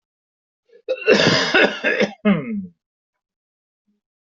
{"expert_labels": [{"quality": "good", "cough_type": "wet", "dyspnea": false, "wheezing": false, "stridor": false, "choking": false, "congestion": false, "nothing": true, "diagnosis": "healthy cough", "severity": "pseudocough/healthy cough"}], "age": 54, "gender": "male", "respiratory_condition": false, "fever_muscle_pain": false, "status": "COVID-19"}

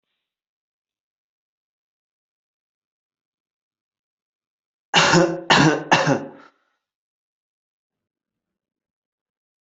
{"expert_labels": [{"quality": "good", "cough_type": "dry", "dyspnea": false, "wheezing": false, "stridor": false, "choking": false, "congestion": false, "nothing": true, "diagnosis": "upper respiratory tract infection", "severity": "unknown"}], "age": 38, "gender": "male", "respiratory_condition": true, "fever_muscle_pain": false, "status": "symptomatic"}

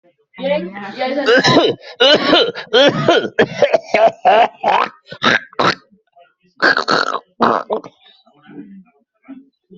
{"expert_labels": [{"quality": "good", "cough_type": "wet", "dyspnea": false, "wheezing": false, "stridor": false, "choking": false, "congestion": false, "nothing": true, "diagnosis": "lower respiratory tract infection", "severity": "severe"}], "age": 46, "gender": "male", "respiratory_condition": false, "fever_muscle_pain": true, "status": "symptomatic"}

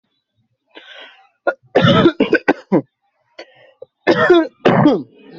{"expert_labels": [{"quality": "ok", "cough_type": "dry", "dyspnea": false, "wheezing": false, "stridor": false, "choking": false, "congestion": false, "nothing": true, "diagnosis": "COVID-19", "severity": "mild"}], "age": 21, "gender": "male", "respiratory_condition": true, "fever_muscle_pain": true, "status": "COVID-19"}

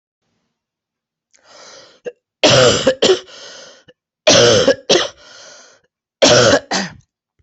{"expert_labels": [{"quality": "good", "cough_type": "wet", "dyspnea": false, "wheezing": false, "stridor": false, "choking": false, "congestion": false, "nothing": true, "diagnosis": "lower respiratory tract infection", "severity": "mild"}], "age": 52, "gender": "female", "respiratory_condition": false, "fever_muscle_pain": false, "status": "symptomatic"}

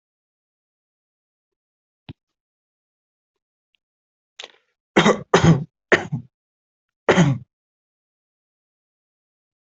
{"expert_labels": [{"quality": "good", "cough_type": "dry", "dyspnea": false, "wheezing": false, "stridor": false, "choking": false, "congestion": false, "nothing": true, "diagnosis": "upper respiratory tract infection", "severity": "mild"}], "age": 27, "gender": "female", "respiratory_condition": false, "fever_muscle_pain": false, "status": "COVID-19"}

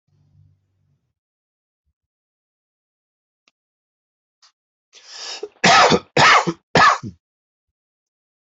{"expert_labels": [{"quality": "ok", "cough_type": "dry", "dyspnea": false, "wheezing": false, "stridor": false, "choking": false, "congestion": false, "nothing": true, "diagnosis": "lower respiratory tract infection", "severity": "mild"}], "age": 50, "gender": "male", "respiratory_condition": true, "fever_muscle_pain": false, "status": "symptomatic"}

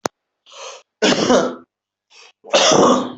{"expert_labels": [{"quality": "good", "cough_type": "wet", "dyspnea": false, "wheezing": false, "stridor": false, "choking": false, "congestion": false, "nothing": true, "diagnosis": "lower respiratory tract infection", "severity": "mild"}], "age": 21, "gender": "male", "respiratory_condition": true, "fever_muscle_pain": true, "status": "symptomatic"}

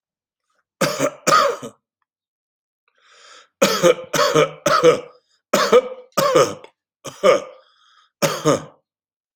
{"expert_labels": [{"quality": "good", "cough_type": "dry", "dyspnea": false, "wheezing": false, "stridor": false, "choking": false, "congestion": false, "nothing": true, "diagnosis": "upper respiratory tract infection", "severity": "mild"}], "age": 62, "gender": "male", "respiratory_condition": false, "fever_muscle_pain": false, "status": "healthy"}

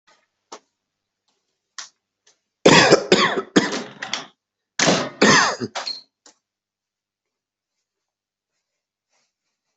{"expert_labels": [{"quality": "ok", "cough_type": "dry", "dyspnea": false, "wheezing": false, "stridor": false, "choking": false, "congestion": false, "nothing": true, "diagnosis": "upper respiratory tract infection", "severity": "mild"}], "age": 43, "gender": "male", "respiratory_condition": false, "fever_muscle_pain": false, "status": "healthy"}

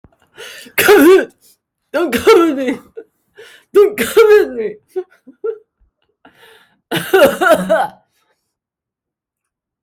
{"expert_labels": [{"quality": "good", "cough_type": "dry", "dyspnea": false, "wheezing": false, "stridor": false, "choking": false, "congestion": false, "nothing": true, "diagnosis": "lower respiratory tract infection", "severity": "mild"}], "age": 35, "gender": "female", "respiratory_condition": false, "fever_muscle_pain": false, "status": "healthy"}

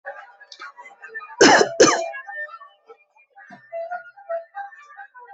{"expert_labels": [{"quality": "good", "cough_type": "dry", "dyspnea": false, "wheezing": false, "stridor": false, "choking": false, "congestion": false, "nothing": true, "diagnosis": "upper respiratory tract infection", "severity": "mild"}], "age": 47, "gender": "male", "respiratory_condition": true, "fever_muscle_pain": false, "status": "symptomatic"}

